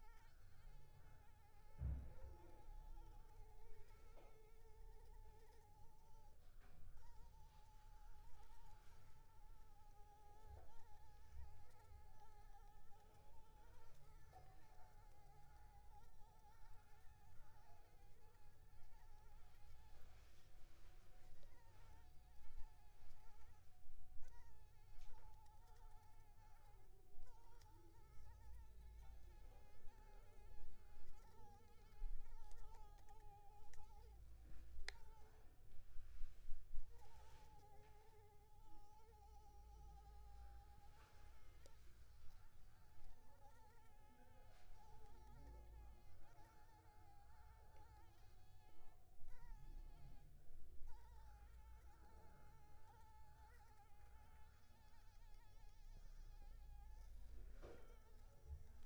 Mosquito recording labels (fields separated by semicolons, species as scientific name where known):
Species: Anopheles arabiensis; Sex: female; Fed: unfed; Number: one; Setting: cup